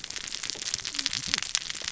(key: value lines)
label: biophony, cascading saw
recorder: SoundTrap 600 or HydroMoth